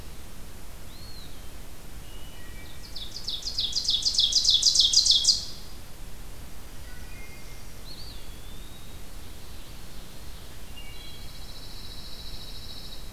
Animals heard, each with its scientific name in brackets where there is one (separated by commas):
Ovenbird (Seiurus aurocapilla), Eastern Wood-Pewee (Contopus virens), Wood Thrush (Hylocichla mustelina), Pine Warbler (Setophaga pinus)